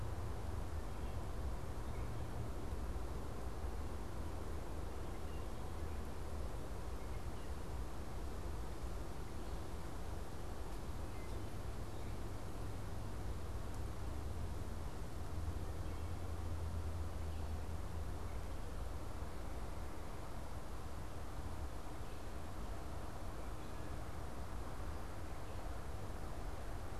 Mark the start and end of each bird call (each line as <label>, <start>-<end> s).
Wood Thrush (Hylocichla mustelina), 10.8-11.7 s
Wood Thrush (Hylocichla mustelina), 15.4-16.3 s